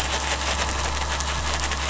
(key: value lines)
label: anthrophony, boat engine
recorder: SoundTrap 500